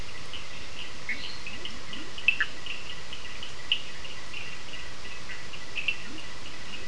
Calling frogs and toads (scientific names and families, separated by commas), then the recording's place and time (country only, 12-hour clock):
Sphaenorhynchus surdus (Hylidae), Dendropsophus minutus (Hylidae), Leptodactylus latrans (Leptodactylidae), Boana bischoffi (Hylidae)
Brazil, 10:00pm